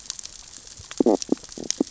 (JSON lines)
{"label": "biophony, stridulation", "recorder": "SoundTrap 600 or HydroMoth"}